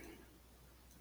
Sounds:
Sneeze